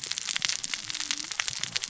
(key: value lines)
label: biophony, cascading saw
recorder: SoundTrap 600 or HydroMoth